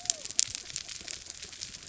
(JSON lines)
{"label": "biophony", "recorder": "SoundTrap 300"}